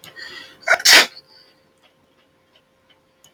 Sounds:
Sneeze